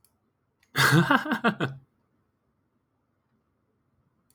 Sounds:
Laughter